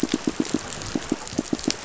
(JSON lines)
{"label": "biophony, pulse", "recorder": "SoundTrap 500"}